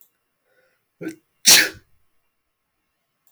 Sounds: Sneeze